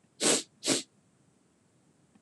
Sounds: Sniff